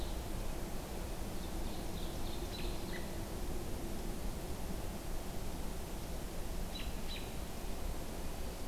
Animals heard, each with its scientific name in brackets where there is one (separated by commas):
American Robin (Turdus migratorius), Ovenbird (Seiurus aurocapilla)